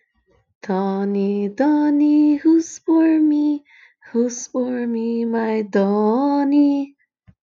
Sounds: Sigh